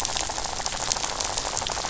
{"label": "biophony, rattle", "recorder": "SoundTrap 500"}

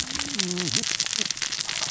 {"label": "biophony, cascading saw", "recorder": "SoundTrap 600 or HydroMoth"}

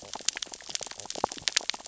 {"label": "biophony, stridulation", "recorder": "SoundTrap 600 or HydroMoth"}
{"label": "biophony, sea urchins (Echinidae)", "recorder": "SoundTrap 600 or HydroMoth"}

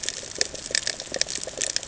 {"label": "ambient", "recorder": "HydroMoth"}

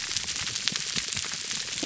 {"label": "biophony", "recorder": "SoundTrap 300"}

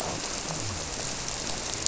{"label": "biophony", "recorder": "SoundTrap 300"}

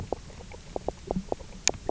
{"label": "biophony, knock croak", "recorder": "SoundTrap 300"}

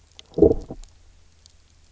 {"label": "biophony, low growl", "recorder": "SoundTrap 300"}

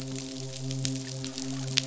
{"label": "biophony, midshipman", "recorder": "SoundTrap 500"}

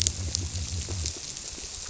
{"label": "biophony", "recorder": "SoundTrap 300"}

